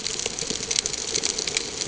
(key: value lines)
label: ambient
recorder: HydroMoth